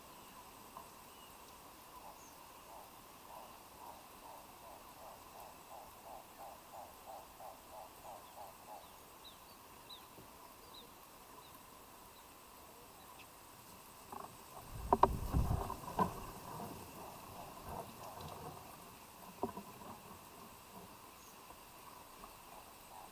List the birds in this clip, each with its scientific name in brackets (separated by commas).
Hartlaub's Turaco (Tauraco hartlaubi), Kikuyu White-eye (Zosterops kikuyuensis)